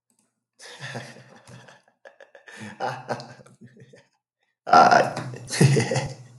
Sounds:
Laughter